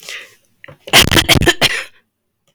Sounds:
Cough